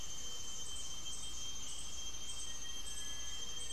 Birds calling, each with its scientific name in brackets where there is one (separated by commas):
Cinereous Tinamou (Crypturellus cinereus), Gray-fronted Dove (Leptotila rufaxilla), Black-faced Antthrush (Formicarius analis)